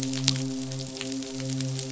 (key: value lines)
label: biophony, midshipman
recorder: SoundTrap 500